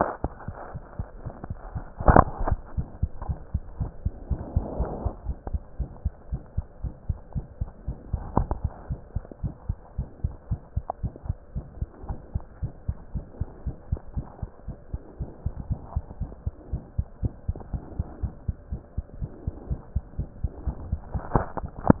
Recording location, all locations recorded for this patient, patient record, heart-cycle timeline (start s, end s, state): aortic valve (AV)
aortic valve (AV)+mitral valve (MV)
#Age: Infant
#Sex: Male
#Height: 69.0 cm
#Weight: 9.616 kg
#Pregnancy status: False
#Murmur: Present
#Murmur locations: aortic valve (AV)+mitral valve (MV)
#Most audible location: mitral valve (MV)
#Systolic murmur timing: Early-systolic
#Systolic murmur shape: Decrescendo
#Systolic murmur grading: I/VI
#Systolic murmur pitch: Low
#Systolic murmur quality: Blowing
#Diastolic murmur timing: nan
#Diastolic murmur shape: nan
#Diastolic murmur grading: nan
#Diastolic murmur pitch: nan
#Diastolic murmur quality: nan
#Outcome: Abnormal
#Campaign: 2015 screening campaign
0.00	8.88	unannotated
8.88	9.00	S1
9.00	9.12	systole
9.12	9.24	S2
9.24	9.42	diastole
9.42	9.54	S1
9.54	9.66	systole
9.66	9.78	S2
9.78	9.96	diastole
9.96	10.08	S1
10.08	10.20	systole
10.20	10.32	S2
10.32	10.48	diastole
10.48	10.60	S1
10.60	10.72	systole
10.72	10.86	S2
10.86	11.02	diastole
11.02	11.14	S1
11.14	11.26	systole
11.26	11.38	S2
11.38	11.54	diastole
11.54	11.66	S1
11.66	11.78	systole
11.78	11.92	S2
11.92	12.08	diastole
12.08	12.20	S1
12.20	12.34	systole
12.34	12.46	S2
12.46	12.62	diastole
12.62	12.72	S1
12.72	12.84	systole
12.84	12.96	S2
12.96	13.14	diastole
13.14	13.26	S1
13.26	13.40	systole
13.40	13.48	S2
13.48	13.64	diastole
13.64	13.76	S1
13.76	13.88	systole
13.88	14.00	S2
14.00	14.14	diastole
14.14	14.28	S1
14.28	14.42	systole
14.42	14.52	S2
14.52	14.68	diastole
14.68	14.78	S1
14.78	14.90	systole
14.90	15.00	S2
15.00	15.18	diastole
15.18	15.30	S1
15.30	15.42	systole
15.42	15.54	S2
15.54	15.68	diastole
15.68	15.82	S1
15.82	15.94	systole
15.94	16.06	S2
16.06	16.20	diastole
16.20	16.32	S1
16.32	16.42	systole
16.42	16.56	S2
16.56	16.70	diastole
16.70	16.82	S1
16.82	16.94	systole
16.94	17.06	S2
17.06	17.22	diastole
17.22	17.34	S1
17.34	17.44	systole
17.44	17.56	S2
17.56	17.72	diastole
17.72	17.82	S1
17.82	17.98	systole
17.98	18.08	S2
18.08	18.22	diastole
18.22	18.34	S1
18.34	18.44	systole
18.44	18.56	S2
18.56	18.70	diastole
18.70	18.82	S1
18.82	18.94	systole
18.94	19.04	S2
19.04	19.18	diastole
19.18	19.30	S1
19.30	19.44	systole
19.44	19.52	S2
19.52	19.68	diastole
19.68	19.80	S1
19.80	19.92	systole
19.92	20.04	S2
20.04	20.18	diastole
20.18	20.30	S1
20.30	20.40	systole
20.40	20.52	S2
20.52	20.66	diastole
20.66	20.78	S1
20.78	20.90	systole
20.90	21.00	S2
21.00	21.11	diastole
21.11	22.00	unannotated